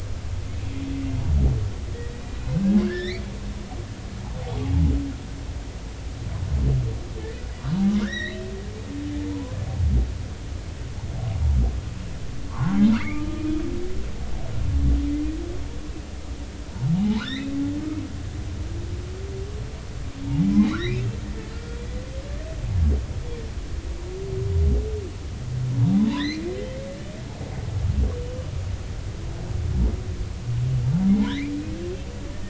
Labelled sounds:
2.3	3.2	humpback whale, 1.6 to 4.2 kHz
7.2	7.5	humpback whale, 1.7 to 2.0 kHz
8.0	9.5	humpback whale, 0.86 to 4.2 kHz
12.5	13.3	humpback whale, 0.80 to 2.5 kHz
17.0	17.5	humpback whale, 0.80 to 4.1 kHz
20.2	20.5	humpback whale, 0.80 to 0.96 kHz
20.8	21.9	humpback whale, 1.3 to 3.5 kHz
26.1	26.4	humpback whale, 1.6 to 4.5 kHz
31.1	31.5	humpback whale, 0.80 to 2.5 kHz

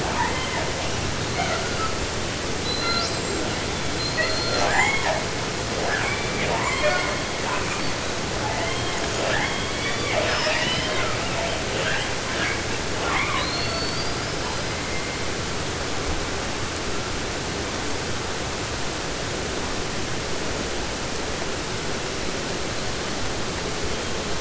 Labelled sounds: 0.0	0.8	killer whale, southern resident, J pod, call S44, 0.29 to 3.5 kHz
1.1	2.0	killer whale, 0.24 to 7.3 kHz
2.5	3.7	killer whale, southern resident, J pod, call S42, 0.43 to 8.0 kHz
3.8	5.5	killer whale, southern resident, J pod, call S42 and call S44, 0.20 to 8.0 kHz
5.7	15.3	killer whale, 0.14 to 8.0 kHz
22.0	23.2	killer whale, 3.4 to 4.6 kHz
23.8	24.3	killer whale, 2.9 to 3.6 kHz

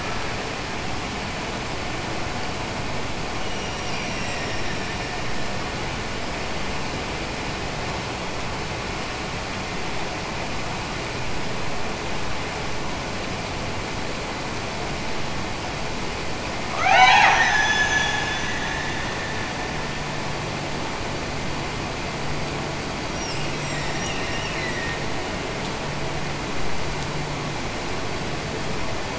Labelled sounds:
3.3	5.9	killer whale, Bigg's (transient), Gulf of Alaska transient, 1.5 to 8.0 kHz
16.6	18.5	killer whale, Bigg's (transient), Gulf of Alaska transient, 0.44 to 7.3 kHz
23.1	25.3	killer whale, Bigg's (transient), Gulf of Alaska transient, 1.6 to 8.0 kHz

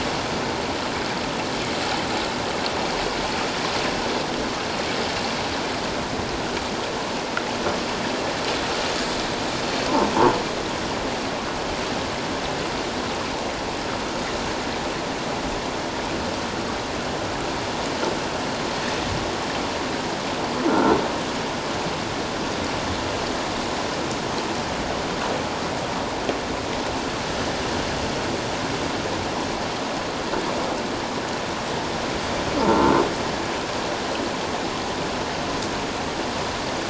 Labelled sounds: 20.7	21.0	croaking sound likely from a nearby submerged object, 1.3 to 1.5 kHz
32.6	33.0	croaking sound likely from a nearby submerged object, 1.3 to 1.5 kHz

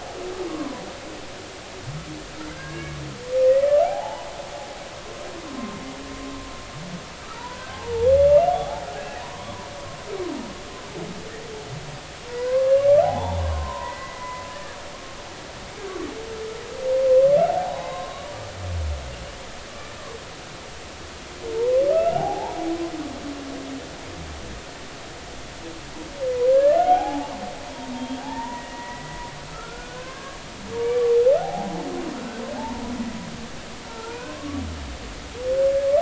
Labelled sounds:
0.5	0.8	humpback whale, 0.96 to 1.2 kHz
2.5	4.3	humpback whale, 0.80 to 2.3 kHz
7.3	8.8	humpback whale, 0.80 to 2.9 kHz
9.2	9.7	humpback whale, 0.90 to 1.2 kHz
12.3	12.8	humpback whale, 0.93 to 1.2 kHz
13.4	14.5	humpback whale, 0.80 to 2.1 kHz
17.5	18.3	humpback whale, 0.80 to 3.9 kHz
21.9	22.6	humpback whale, 0.80 to 1.5 kHz
26.5	27.4	humpback whale, 0.80 to 1.8 kHz
27.9	29.2	humpback whale, 0.80 to 3.3 kHz
29.5	30.4	humpback whale, 0.99 to 1.7 kHz
31.4	31.9	humpback whale, 0.80 to 0.93 kHz
32.6	32.8	humpback whale, 0.80 to 0.99 kHz
33.8	34.6	humpback whale, 0.86 to 2.7 kHz

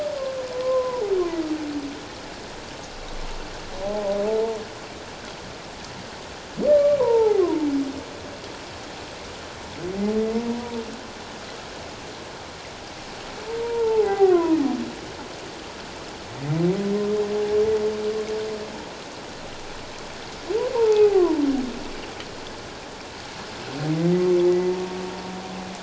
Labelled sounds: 0.5	1.0	humpback whale, 0.91 to 1.1 kHz
3.8	4.6	humpback whale, 0.78 to 0.97 kHz
6.7	7.7	humpback whale, 0.78 to 1.2 kHz
10.3	10.8	humpback whale, 0.91 to 1.0 kHz
13.5	14.6	humpback whale, 0.78 to 2.1 kHz
20.7	21.4	humpback whale, 0.81 to 1.2 kHz
24.5	24.7	humpback whale, 1.9 to 2.0 kHz

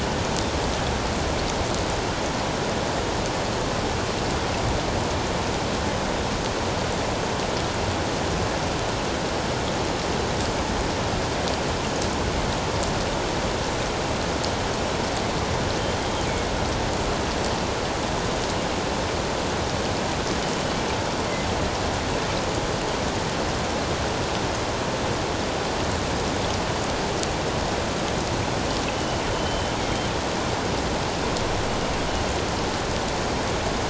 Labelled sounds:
28.9	29.7	killer whale, northern resident, G clan, GG subclan, 2.9 to 3.1 kHz

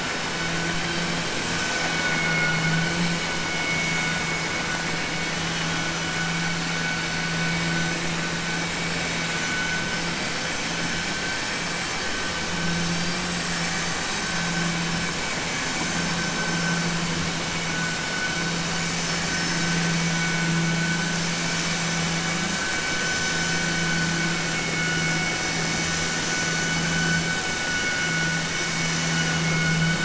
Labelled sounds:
0.8	1.2	vessel noise, 2.3 to 5.4 kHz

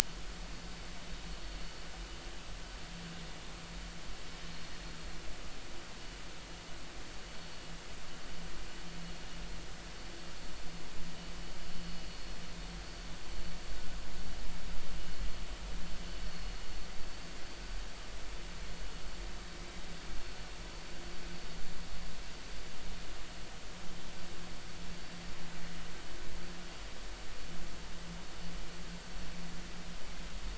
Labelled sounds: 16.2	16.5	vessel noise, 4.2 to 4.5 kHz

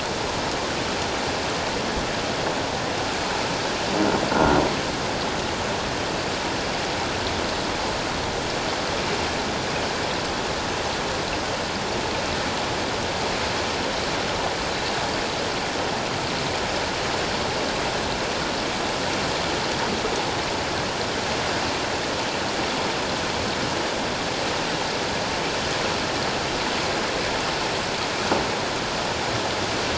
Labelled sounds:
4.3	4.6	croaking sound likely from a nearby submerged object, 1.3 to 1.5 kHz

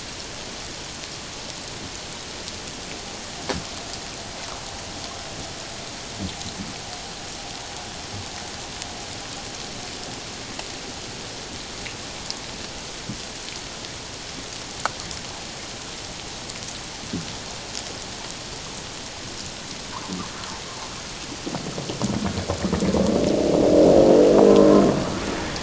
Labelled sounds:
24.6	24.8	humpback whale, 0.97 to 1.1 kHz

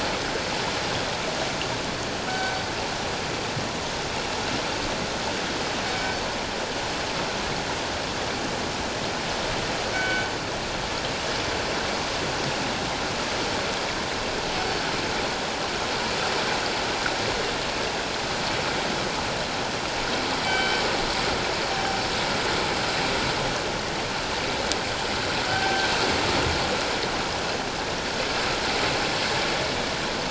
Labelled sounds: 2.3	2.6	killer whale, northern resident, G clan, 1.4 to 1.6 kHz
5.9	6.1	killer whale, northern resident, G clan, 2.2 to 2.3 kHz
9.9	10.3	killer whale, northern resident, G clan, 1.4 to 3.1 kHz
20.4	20.8	killer whale, northern resident, G clan, 1.5 to 3.1 kHz
25.5	25.9	killer whale, northern resident, G clan, 0.78 to 1.6 kHz

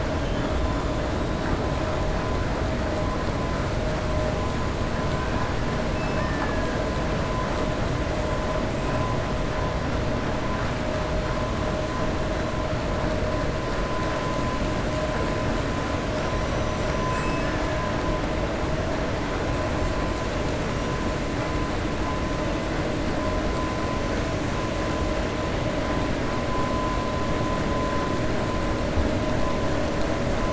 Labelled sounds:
16.1	17.6	killer whale, 1.5 to 7.8 kHz

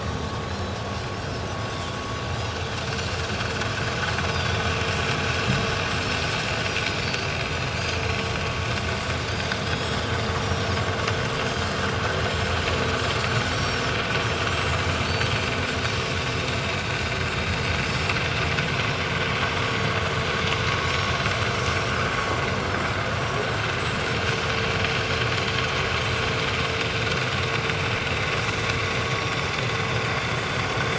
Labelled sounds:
0.0	0.8	Pacific white-sided dolphin, 3.8 to 5.8 kHz
7.0	8.1	Pacific white-sided dolphin, 4.4 to 6.5 kHz
9.6	10.0	Pacific white-sided dolphin, 3.3 to 6.8 kHz
10.4	10.7	Pacific white-sided dolphin, 5.4 to 5.9 kHz
12.3	12.5	Pacific white-sided dolphin, 7.1 to 7.6 kHz
13.5	13.8	Pacific white-sided dolphin, 4.3 to 7.8 kHz
14.5	14.8	Pacific white-sided dolphin, 7.1 to 7.8 kHz
15.0	15.3	Pacific white-sided dolphin, 4.2 to 4.7 kHz
17.9	18.1	Pacific white-sided dolphin, 5.1 to 5.6 kHz
21.8	22.0	Pacific white-sided dolphin, 7.4 to 7.9 kHz
23.2	23.5	Pacific white-sided dolphin, 7.4 to 7.7 kHz
29.2	29.4	Pacific white-sided dolphin, 5.5 to 5.7 kHz

